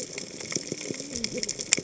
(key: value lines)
label: biophony, cascading saw
recorder: HydroMoth